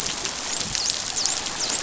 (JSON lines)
{"label": "biophony, dolphin", "recorder": "SoundTrap 500"}